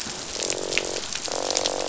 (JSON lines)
{"label": "biophony, croak", "recorder": "SoundTrap 500"}